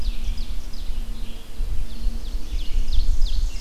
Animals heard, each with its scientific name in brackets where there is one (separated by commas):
Red-eyed Vireo (Vireo olivaceus), Ovenbird (Seiurus aurocapilla)